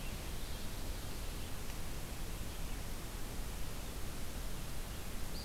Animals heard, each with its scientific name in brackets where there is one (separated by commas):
Red-eyed Vireo (Vireo olivaceus)